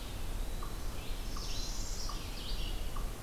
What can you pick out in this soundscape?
Eastern Wood-Pewee, Red-eyed Vireo, unknown mammal, Northern Parula